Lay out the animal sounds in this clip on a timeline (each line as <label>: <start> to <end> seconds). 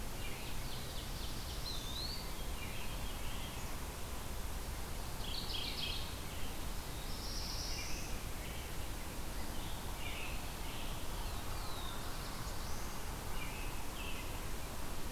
Ovenbird (Seiurus aurocapilla): 0.0 to 1.8 seconds
Eastern Wood-Pewee (Contopus virens): 1.5 to 2.8 seconds
Veery (Catharus fuscescens): 2.2 to 3.8 seconds
Mourning Warbler (Geothlypis philadelphia): 5.1 to 6.4 seconds
Black-throated Blue Warbler (Setophaga caerulescens): 6.8 to 8.3 seconds
American Robin (Turdus migratorius): 7.6 to 8.8 seconds
American Robin (Turdus migratorius): 9.4 to 11.1 seconds
Black-throated Blue Warbler (Setophaga caerulescens): 11.0 to 13.2 seconds
American Robin (Turdus migratorius): 13.3 to 14.5 seconds